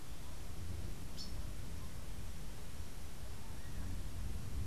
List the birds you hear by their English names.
Rufous-capped Warbler